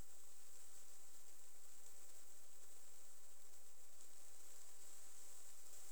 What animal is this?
Platycleis albopunctata, an orthopteran